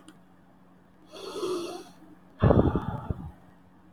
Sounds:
Sigh